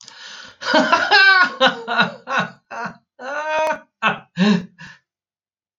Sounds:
Laughter